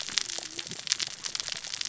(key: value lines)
label: biophony, cascading saw
recorder: SoundTrap 600 or HydroMoth